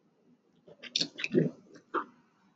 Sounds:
Throat clearing